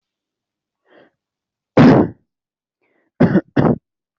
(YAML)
expert_labels:
- quality: poor
  cough_type: unknown
  dyspnea: false
  wheezing: false
  stridor: false
  choking: false
  congestion: false
  nothing: true
  diagnosis: healthy cough
  severity: pseudocough/healthy cough